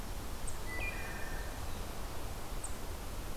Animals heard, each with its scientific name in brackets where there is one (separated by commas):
Wood Thrush (Hylocichla mustelina)